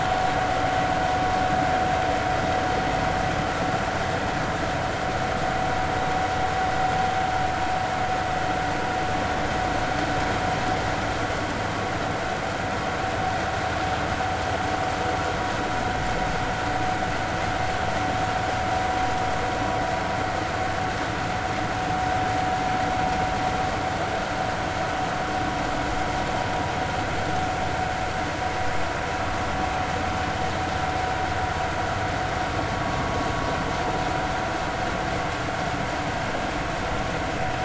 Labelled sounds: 32.8	33.1	vessel noise, 1.1 to 1.2 kHz

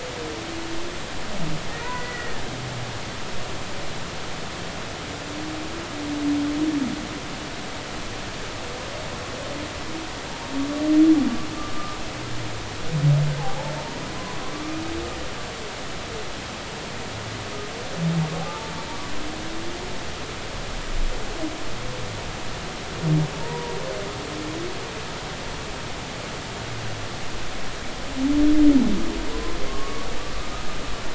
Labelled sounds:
1.7	2.4	humpback whale, 1.4 to 2.0 kHz
14.4	14.7	humpback whale, 0.80 to 0.93 kHz
19.4	19.7	humpback whale, 0.80 to 0.93 kHz
23.4	23.7	humpback whale, 0.86 to 1.0 kHz
29.3	30.1	humpback whale, 0.96 to 1.2 kHz

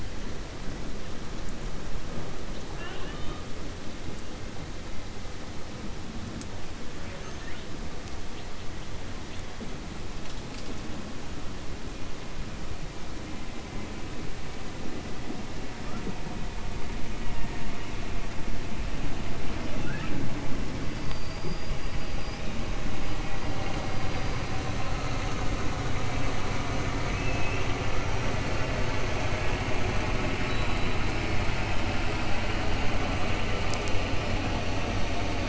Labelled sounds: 6.9	7.7	killer whale, 0.62 to 3.7 kHz
26.9	27.7	killer whale, 1.4 to 3.4 kHz

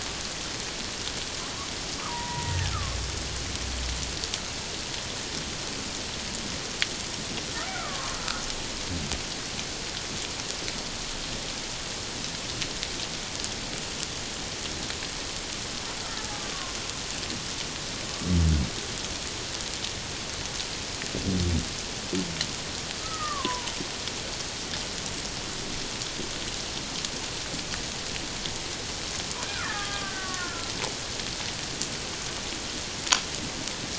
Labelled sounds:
2.1	3.0	killer whale, Bigg's (transient), 0.88 to 1.9 kHz
7.7	8.4	killer whale, Bigg's (transient), 1.0 to 1.6 kHz
23.0	23.8	killer whale, Bigg's (transient), 0.84 to 2.0 kHz
29.4	30.7	killer whale, Bigg's (transient), 1.0 to 2.0 kHz

